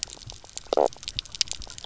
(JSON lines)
{"label": "biophony, knock croak", "recorder": "SoundTrap 300"}